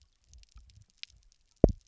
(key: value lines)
label: biophony, double pulse
recorder: SoundTrap 300